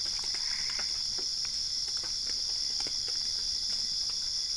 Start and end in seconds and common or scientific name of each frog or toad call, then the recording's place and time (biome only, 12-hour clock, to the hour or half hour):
0.0	1.2	Boana albopunctata
Cerrado, ~4am